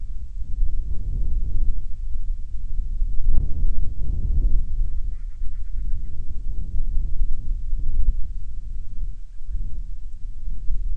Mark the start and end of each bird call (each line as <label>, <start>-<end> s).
Band-rumped Storm-Petrel (Hydrobates castro), 4.8-6.3 s
Band-rumped Storm-Petrel (Hydrobates castro), 8.8-9.7 s